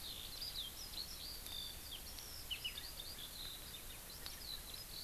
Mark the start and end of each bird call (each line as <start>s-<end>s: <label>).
0.0s-5.0s: Eurasian Skylark (Alauda arvensis)